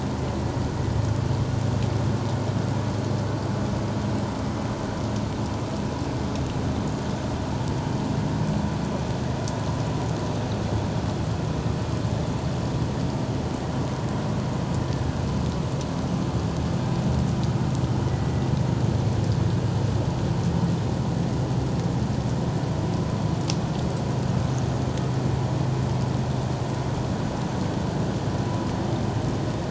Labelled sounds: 18.0	18.4	killer whale, 1.9 to 2.0 kHz

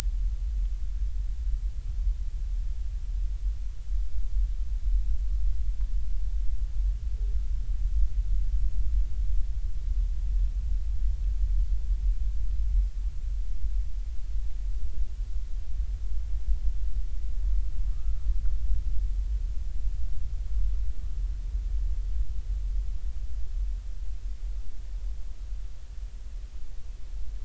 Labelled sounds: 17.9	18.2	humpback whale, 1.1 to 1.4 kHz

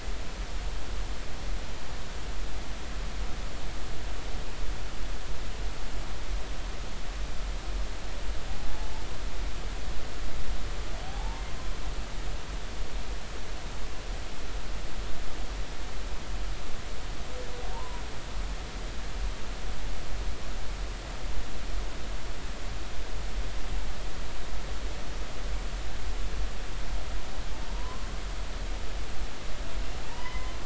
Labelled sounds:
11.0	11.4	humpback whale, 0.80 to 0.96 kHz
17.7	18.0	humpback whale, 0.86 to 1.1 kHz
27.7	28.0	humpback whale, 0.90 to 1.1 kHz
30.0	30.5	humpback whale, 0.86 to 3.1 kHz

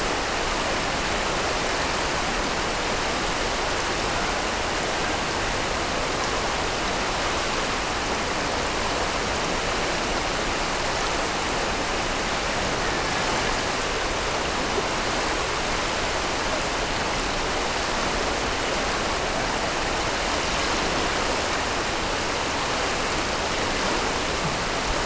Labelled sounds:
12.2	13.5	killer whale, Bigg's (transient), Gulf of Alaska transient, 1.6 to 2.4 kHz

